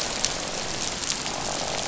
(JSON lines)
{"label": "biophony, croak", "recorder": "SoundTrap 500"}